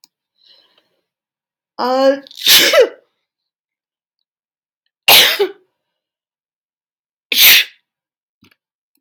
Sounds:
Sneeze